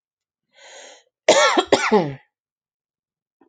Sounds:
Cough